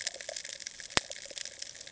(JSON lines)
{"label": "ambient", "recorder": "HydroMoth"}